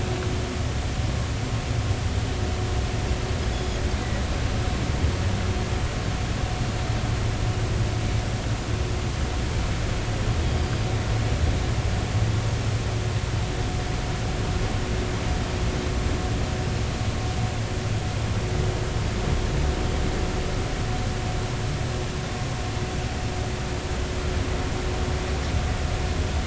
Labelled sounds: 3.5	3.8	Pacific white-sided dolphin, 3.3 to 5.2 kHz

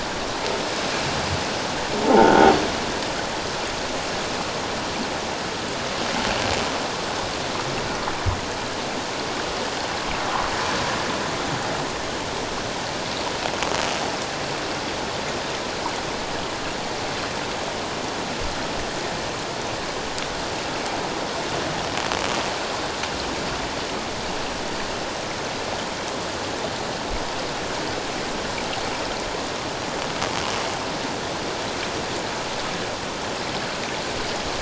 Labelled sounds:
2.0	2.5	croaking sound likely from a nearby submerged object, 0.78 to 1.5 kHz

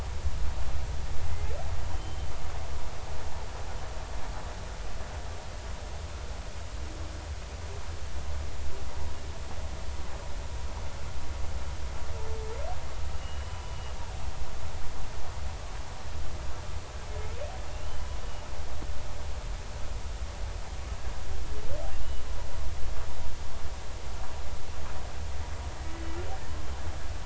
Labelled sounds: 1.3	1.6	humpback whale, 2.0 to 2.2 kHz
1.9	2.3	humpback whale, 3.0 to 3.2 kHz
13.1	13.9	humpback whale, 2.8 to 3.0 kHz
17.7	18.1	humpback whale, 2.7 to 3.1 kHz
21.9	22.2	humpback whale, 2.7 to 3.0 kHz

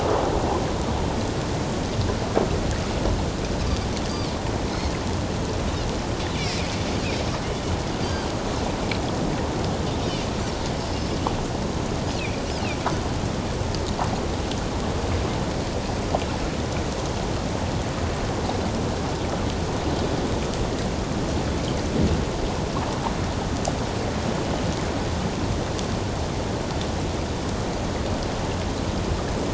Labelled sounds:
4.1	4.3	Pacific white-sided dolphin, 4.2 to 4.8 kHz
8.0	8.3	Pacific white-sided dolphin, 4.5 to 4.8 kHz

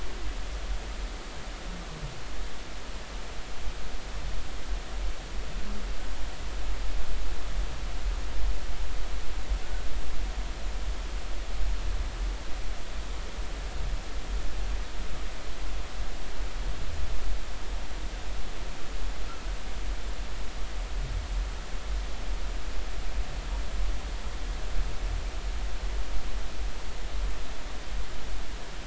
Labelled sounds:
9.6	9.9	humpback whale, 1.4 to 1.6 kHz

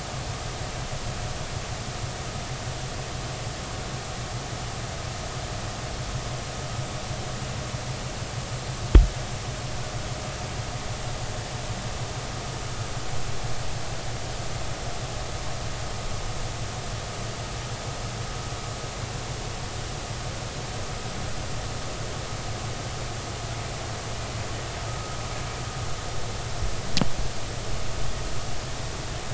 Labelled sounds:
24.9	25.2	killer whale, Bigg's (transient), 1.2 to 1.3 kHz

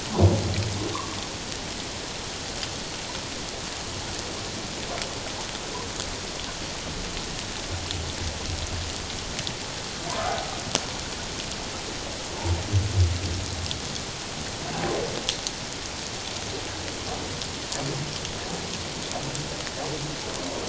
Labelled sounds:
0.9	1.2	humpback whale, 0.94 to 1.2 kHz
10.2	10.4	humpback whale, 1.2 to 1.5 kHz

